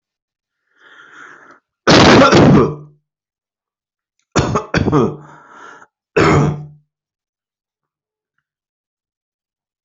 {"expert_labels": [{"quality": "poor", "cough_type": "wet", "dyspnea": false, "wheezing": false, "stridor": false, "choking": false, "congestion": false, "nothing": true, "diagnosis": "lower respiratory tract infection", "severity": "mild"}], "age": 28, "gender": "female", "respiratory_condition": false, "fever_muscle_pain": false, "status": "COVID-19"}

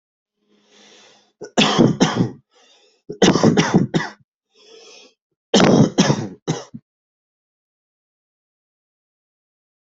{"expert_labels": [{"quality": "ok", "cough_type": "dry", "dyspnea": false, "wheezing": false, "stridor": false, "choking": false, "congestion": false, "nothing": true, "diagnosis": "COVID-19", "severity": "mild"}, {"quality": "good", "cough_type": "unknown", "dyspnea": true, "wheezing": false, "stridor": false, "choking": false, "congestion": false, "nothing": false, "diagnosis": "lower respiratory tract infection", "severity": "mild"}, {"quality": "good", "cough_type": "unknown", "dyspnea": false, "wheezing": false, "stridor": false, "choking": false, "congestion": false, "nothing": true, "diagnosis": "upper respiratory tract infection", "severity": "mild"}, {"quality": "good", "cough_type": "dry", "dyspnea": false, "wheezing": false, "stridor": false, "choking": false, "congestion": false, "nothing": true, "diagnosis": "COVID-19", "severity": "mild"}], "age": 28, "gender": "male", "respiratory_condition": false, "fever_muscle_pain": false, "status": "symptomatic"}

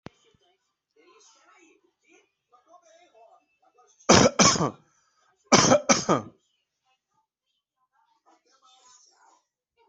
{"expert_labels": [{"quality": "ok", "cough_type": "wet", "dyspnea": false, "wheezing": false, "stridor": false, "choking": false, "congestion": false, "nothing": false, "diagnosis": "COVID-19", "severity": "mild"}], "age": 37, "gender": "male", "respiratory_condition": false, "fever_muscle_pain": false, "status": "healthy"}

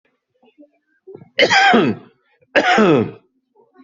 {"expert_labels": [{"quality": "ok", "cough_type": "dry", "dyspnea": false, "wheezing": false, "stridor": false, "choking": false, "congestion": false, "nothing": true, "diagnosis": "upper respiratory tract infection", "severity": "mild"}]}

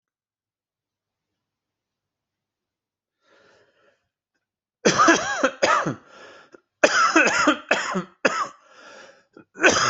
{"expert_labels": [{"quality": "good", "cough_type": "wet", "dyspnea": false, "wheezing": false, "stridor": false, "choking": false, "congestion": false, "nothing": true, "diagnosis": "upper respiratory tract infection", "severity": "mild"}], "age": 52, "gender": "male", "respiratory_condition": false, "fever_muscle_pain": true, "status": "symptomatic"}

